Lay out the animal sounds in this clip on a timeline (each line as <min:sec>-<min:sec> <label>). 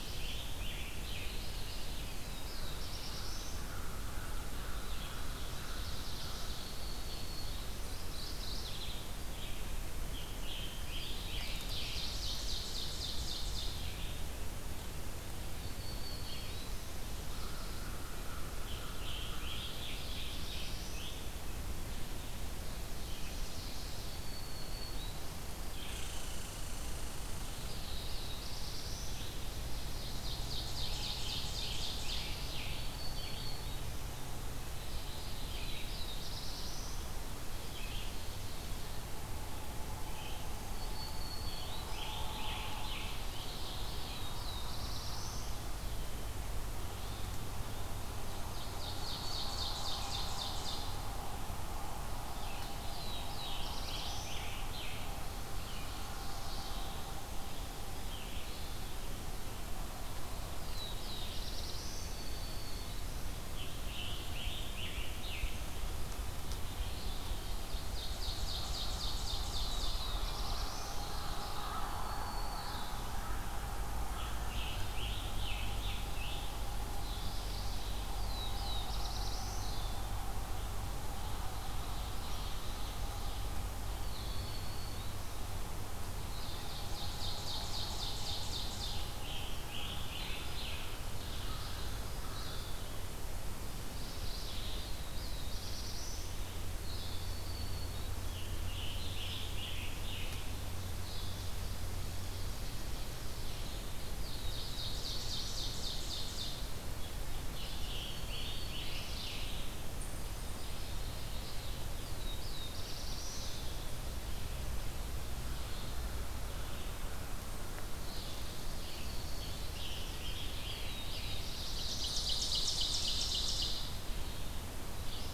0:00.0-0:00.5 Chestnut-sided Warbler (Setophaga pensylvanica)
0:00.0-0:01.7 Scarlet Tanager (Piranga olivacea)
0:00.0-0:06.6 Red-eyed Vireo (Vireo olivaceus)
0:01.1-0:02.1 Mourning Warbler (Geothlypis philadelphia)
0:01.9-0:03.7 Black-throated Blue Warbler (Setophaga caerulescens)
0:03.2-0:07.5 American Crow (Corvus brachyrhynchos)
0:06.4-0:08.0 Black-throated Green Warbler (Setophaga virens)
0:07.8-0:09.4 Mourning Warbler (Geothlypis philadelphia)
0:09.8-0:12.0 Scarlet Tanager (Piranga olivacea)
0:10.9-0:12.6 Black-throated Blue Warbler (Setophaga caerulescens)
0:11.0-0:14.2 Ovenbird (Seiurus aurocapilla)
0:13.6-1:07.4 Red-eyed Vireo (Vireo olivaceus)
0:15.4-0:17.0 Black-throated Green Warbler (Setophaga virens)
0:17.0-0:19.9 American Crow (Corvus brachyrhynchos)
0:18.4-0:21.7 Scarlet Tanager (Piranga olivacea)
0:19.3-0:21.4 Black-throated Blue Warbler (Setophaga caerulescens)
0:23.9-0:25.7 Black-throated Green Warbler (Setophaga virens)
0:25.8-0:27.8 Red Squirrel (Tamiasciurus hudsonicus)
0:27.3-0:29.4 Black-throated Blue Warbler (Setophaga caerulescens)
0:29.3-0:32.6 Ovenbird (Seiurus aurocapilla)
0:30.7-0:33.0 Scarlet Tanager (Piranga olivacea)
0:32.5-0:34.2 Black-throated Green Warbler (Setophaga virens)
0:34.4-0:35.8 Mourning Warbler (Geothlypis philadelphia)
0:35.3-0:37.4 Black-throated Blue Warbler (Setophaga caerulescens)
0:40.5-0:42.2 Black-throated Green Warbler (Setophaga virens)
0:41.4-0:43.8 Scarlet Tanager (Piranga olivacea)
0:43.7-0:45.8 Black-throated Blue Warbler (Setophaga caerulescens)
0:48.3-0:51.1 Ovenbird (Seiurus aurocapilla)
0:52.6-0:54.5 Black-throated Blue Warbler (Setophaga caerulescens)
0:52.8-0:55.2 Scarlet Tanager (Piranga olivacea)
0:55.9-0:57.2 Mourning Warbler (Geothlypis philadelphia)
1:00.3-1:02.3 Black-throated Blue Warbler (Setophaga caerulescens)
1:02.0-1:03.5 Black-throated Green Warbler (Setophaga virens)
1:03.3-1:05.7 Scarlet Tanager (Piranga olivacea)
1:07.4-1:09.9 Ovenbird (Seiurus aurocapilla)
1:09.2-1:11.3 Black-throated Blue Warbler (Setophaga caerulescens)
1:11.0-2:05.3 Red-eyed Vireo (Vireo olivaceus)
1:11.6-1:13.3 Black-throated Green Warbler (Setophaga virens)
1:13.8-1:17.0 Scarlet Tanager (Piranga olivacea)
1:16.8-1:18.2 Mourning Warbler (Geothlypis philadelphia)
1:17.7-1:20.0 Black-throated Blue Warbler (Setophaga caerulescens)
1:23.8-1:25.8 Black-throated Green Warbler (Setophaga virens)
1:26.1-1:29.3 Ovenbird (Seiurus aurocapilla)
1:28.9-1:31.0 Scarlet Tanager (Piranga olivacea)
1:33.7-1:35.1 Mourning Warbler (Geothlypis philadelphia)
1:34.4-1:36.5 Black-throated Blue Warbler (Setophaga caerulescens)
1:36.6-1:38.4 Black-throated Green Warbler (Setophaga virens)
1:38.1-1:40.8 Scarlet Tanager (Piranga olivacea)
1:44.0-1:46.9 Ovenbird (Seiurus aurocapilla)
1:44.1-1:45.9 Black-throated Blue Warbler (Setophaga caerulescens)
1:47.3-1:50.1 Scarlet Tanager (Piranga olivacea)
1:47.7-1:49.3 Black-throated Green Warbler (Setophaga virens)
1:50.1-1:51.5 Black-throated Green Warbler (Setophaga virens)
1:51.8-1:53.8 Black-throated Blue Warbler (Setophaga caerulescens)
1:58.4-2:00.1 Black-throated Green Warbler (Setophaga virens)
1:58.8-2:01.9 Scarlet Tanager (Piranga olivacea)
2:00.3-2:02.2 Black-throated Blue Warbler (Setophaga caerulescens)
2:01.6-2:04.1 Ovenbird (Seiurus aurocapilla)